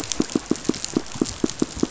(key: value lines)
label: biophony, pulse
recorder: SoundTrap 500